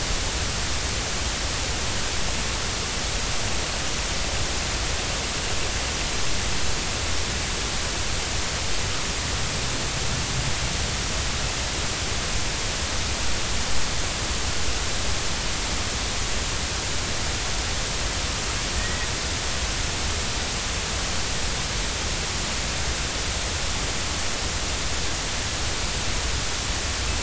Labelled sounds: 18.8	19.1	killer whale, Bigg's (transient), 1.8 to 2.0 kHz

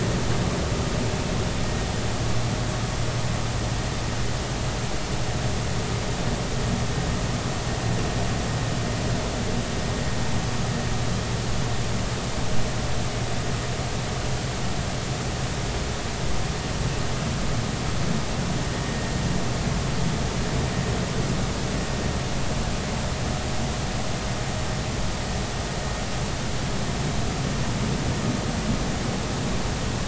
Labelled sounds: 18.7	18.9	vessel noise, 1.8 to 1.9 kHz

